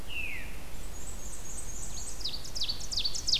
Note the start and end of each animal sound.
[0.00, 0.70] Veery (Catharus fuscescens)
[0.60, 2.26] Black-and-white Warbler (Mniotilta varia)
[1.71, 3.39] Ovenbird (Seiurus aurocapilla)

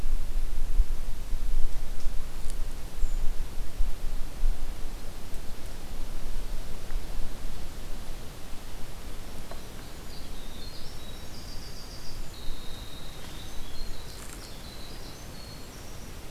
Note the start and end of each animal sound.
[9.18, 16.31] Winter Wren (Troglodytes hiemalis)

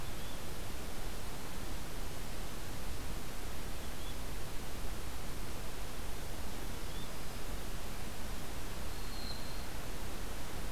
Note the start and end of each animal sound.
[0.00, 0.42] Yellow-bellied Flycatcher (Empidonax flaviventris)
[3.75, 4.15] Yellow-bellied Flycatcher (Empidonax flaviventris)
[6.79, 7.12] Yellow-bellied Flycatcher (Empidonax flaviventris)
[8.90, 9.74] Black-throated Green Warbler (Setophaga virens)

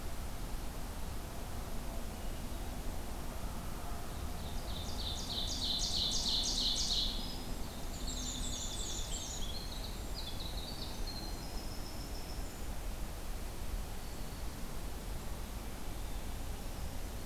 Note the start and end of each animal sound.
[4.49, 7.23] Ovenbird (Seiurus aurocapilla)
[6.96, 12.71] Winter Wren (Troglodytes hiemalis)
[7.89, 9.48] Black-and-white Warbler (Mniotilta varia)

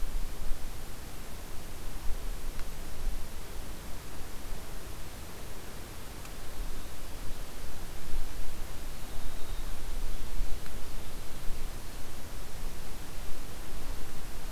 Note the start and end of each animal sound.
[8.12, 12.01] Winter Wren (Troglodytes hiemalis)

